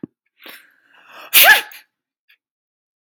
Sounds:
Sneeze